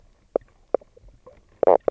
{"label": "biophony, knock croak", "recorder": "SoundTrap 300"}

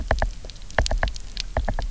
{"label": "biophony, knock", "recorder": "SoundTrap 300"}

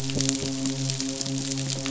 {"label": "biophony, midshipman", "recorder": "SoundTrap 500"}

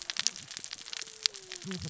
{"label": "biophony, cascading saw", "recorder": "SoundTrap 600 or HydroMoth"}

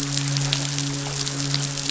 {"label": "biophony, midshipman", "recorder": "SoundTrap 500"}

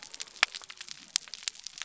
{"label": "biophony", "recorder": "SoundTrap 300"}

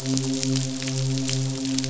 {"label": "biophony, midshipman", "recorder": "SoundTrap 500"}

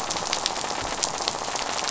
{"label": "biophony, rattle", "recorder": "SoundTrap 500"}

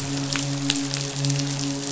{"label": "biophony, midshipman", "recorder": "SoundTrap 500"}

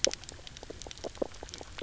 {"label": "biophony, knock croak", "recorder": "SoundTrap 300"}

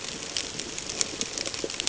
{"label": "ambient", "recorder": "HydroMoth"}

